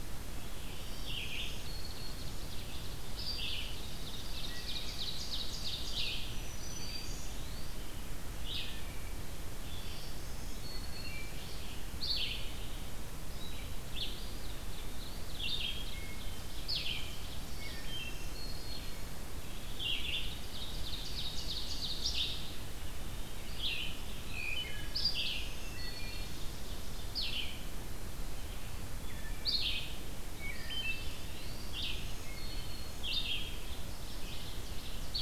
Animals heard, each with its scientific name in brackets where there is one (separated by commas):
Wood Thrush (Hylocichla mustelina), Ovenbird (Seiurus aurocapilla), Red-eyed Vireo (Vireo olivaceus), Black-throated Green Warbler (Setophaga virens), Eastern Wood-Pewee (Contopus virens)